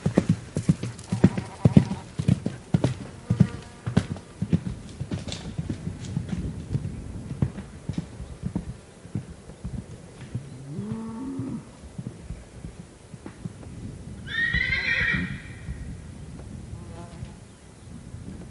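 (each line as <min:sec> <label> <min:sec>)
0:00.0 A horse canters and the sound fades away. 0:13.9
0:01.1 A goat bleats silently in the distance. 0:02.2
0:03.2 An insect flying nearby fades away. 0:04.5
0:10.6 A cow moos steadily in the distance. 0:11.7
0:14.3 A horse neighs loudly in a repeating pattern. 0:15.4
0:16.6 An insect flying nearby fades away. 0:17.4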